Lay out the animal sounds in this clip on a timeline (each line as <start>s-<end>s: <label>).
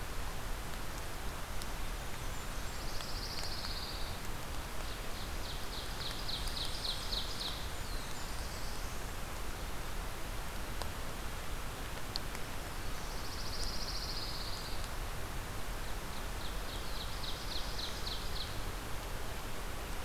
1.8s-3.4s: Blackburnian Warbler (Setophaga fusca)
2.4s-4.5s: Pine Warbler (Setophaga pinus)
4.7s-7.8s: Ovenbird (Seiurus aurocapilla)
7.2s-8.9s: Blackburnian Warbler (Setophaga fusca)
7.2s-9.2s: Black-throated Blue Warbler (Setophaga caerulescens)
12.5s-14.9s: Pine Warbler (Setophaga pinus)
15.5s-18.8s: Ovenbird (Seiurus aurocapilla)
16.5s-18.4s: Black-throated Blue Warbler (Setophaga caerulescens)